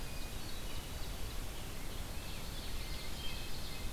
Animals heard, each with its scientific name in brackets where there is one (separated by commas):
Hermit Thrush (Catharus guttatus), Rose-breasted Grosbeak (Pheucticus ludovicianus), Ovenbird (Seiurus aurocapilla)